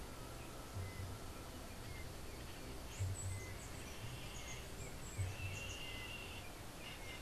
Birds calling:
Yellow-headed Caracara (Milvago chimachima)

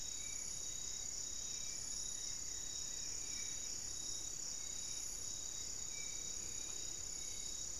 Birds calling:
Spot-winged Antshrike (Pygiptila stellaris)
Hauxwell's Thrush (Turdus hauxwelli)
Goeldi's Antbird (Akletos goeldii)

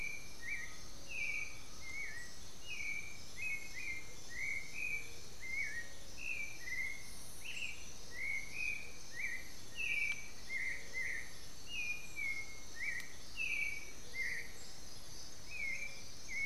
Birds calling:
Black-faced Antthrush (Formicarius analis)
Black-billed Thrush (Turdus ignobilis)
Undulated Tinamou (Crypturellus undulatus)
Amazonian Motmot (Momotus momota)

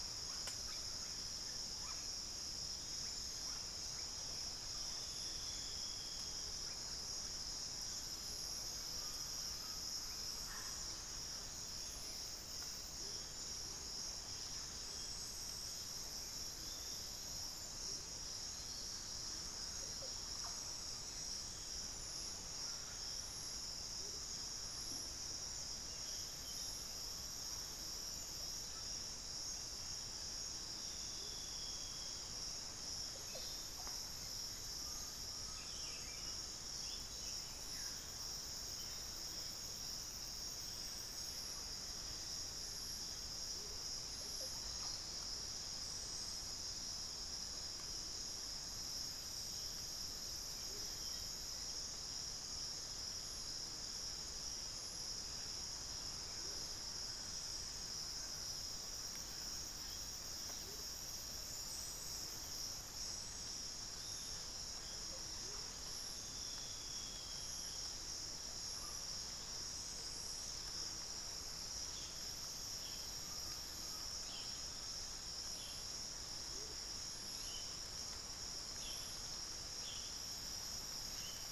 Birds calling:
Amazonian Motmot (Momotus momota)
Undulated Tinamou (Crypturellus undulatus)
Buff-throated Saltator (Saltator maximus)
Hauxwell's Thrush (Turdus hauxwelli)
unidentified bird
Russet-backed Oropendola (Psarocolius angustifrons)
Chestnut-winged Foliage-gleaner (Dendroma erythroptera)

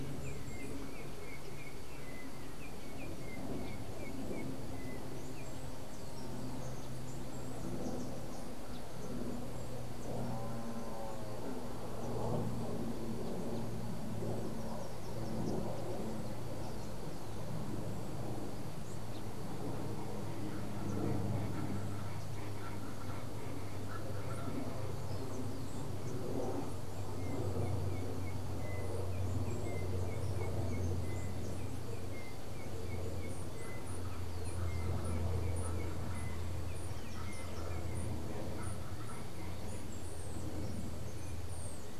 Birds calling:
Yellow-backed Oriole (Icterus chrysater)
unidentified bird
Colombian Chachalaca (Ortalis columbiana)

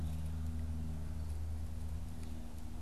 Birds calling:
Red-eyed Vireo (Vireo olivaceus)

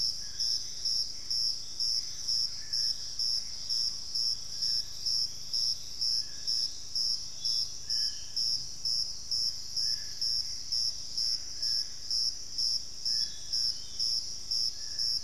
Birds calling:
Black-faced Antthrush (Formicarius analis)
Gray Antbird (Cercomacra cinerascens)
Dusky-throated Antshrike (Thamnomanes ardesiacus)

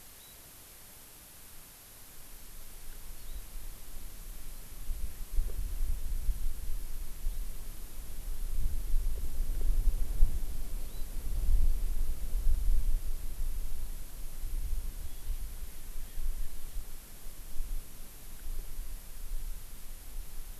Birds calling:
Erckel's Francolin (Pternistis erckelii)

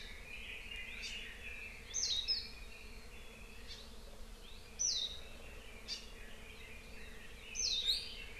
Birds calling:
Hawaii Amakihi (Chlorodrepanis virens)
Red-billed Leiothrix (Leiothrix lutea)
Warbling White-eye (Zosterops japonicus)

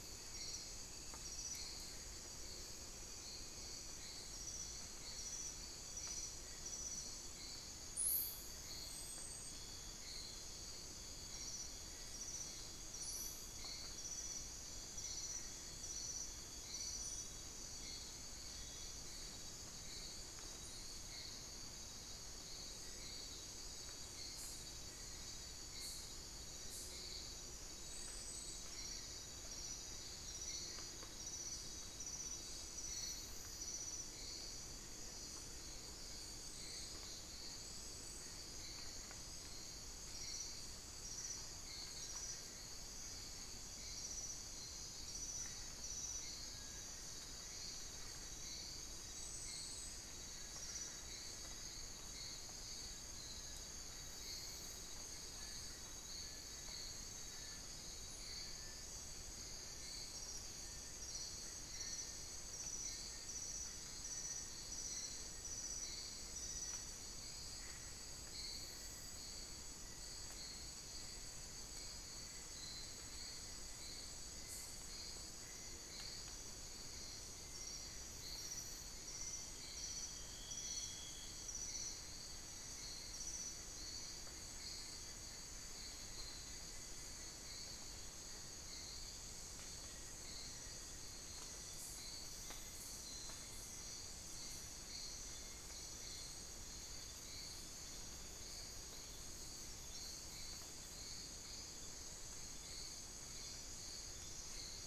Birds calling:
Little Tinamou (Crypturellus soui)
unidentified bird

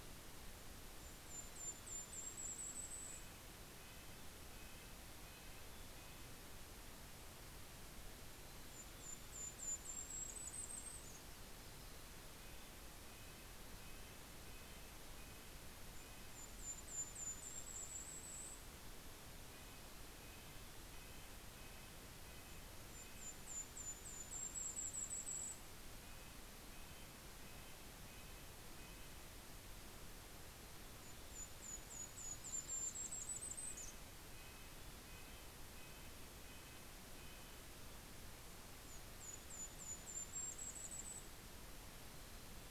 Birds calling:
Mountain Chickadee (Poecile gambeli)
Yellow-rumped Warbler (Setophaga coronata)
Golden-crowned Kinglet (Regulus satrapa)
Red-breasted Nuthatch (Sitta canadensis)

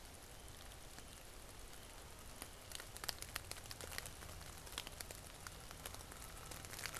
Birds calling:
Canada Goose (Branta canadensis)

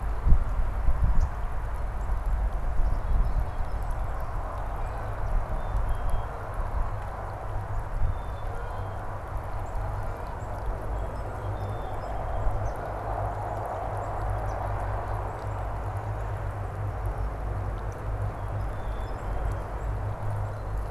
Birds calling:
Song Sparrow (Melospiza melodia)
Canada Goose (Branta canadensis)
Black-capped Chickadee (Poecile atricapillus)

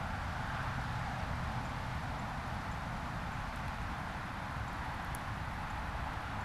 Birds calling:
Northern Cardinal (Cardinalis cardinalis)

